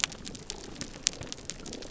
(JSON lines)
{"label": "biophony, damselfish", "recorder": "SoundTrap 300"}